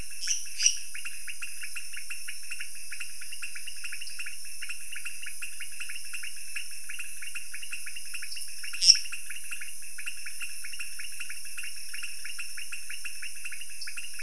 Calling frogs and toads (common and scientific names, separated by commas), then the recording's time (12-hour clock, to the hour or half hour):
pointedbelly frog (Leptodactylus podicipinus), lesser tree frog (Dendropsophus minutus), dwarf tree frog (Dendropsophus nanus)
3am